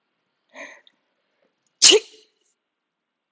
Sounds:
Sneeze